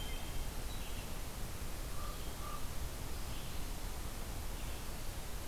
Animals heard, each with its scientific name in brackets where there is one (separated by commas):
Red-eyed Vireo (Vireo olivaceus), Hermit Thrush (Catharus guttatus), Common Raven (Corvus corax)